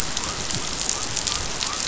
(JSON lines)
{"label": "biophony", "recorder": "SoundTrap 500"}